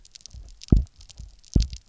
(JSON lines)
{"label": "biophony, double pulse", "recorder": "SoundTrap 300"}